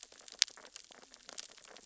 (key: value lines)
label: biophony, sea urchins (Echinidae)
recorder: SoundTrap 600 or HydroMoth